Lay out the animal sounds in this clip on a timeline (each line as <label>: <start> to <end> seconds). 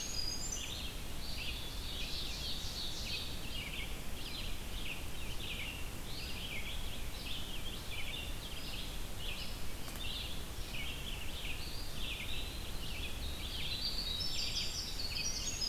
Winter Wren (Troglodytes hiemalis): 0.0 to 1.1 seconds
Red-eyed Vireo (Vireo olivaceus): 0.0 to 15.7 seconds
Ovenbird (Seiurus aurocapilla): 1.2 to 3.6 seconds
Winter Wren (Troglodytes hiemalis): 12.8 to 15.7 seconds